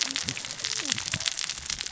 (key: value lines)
label: biophony, cascading saw
recorder: SoundTrap 600 or HydroMoth